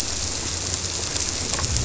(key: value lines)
label: biophony
recorder: SoundTrap 300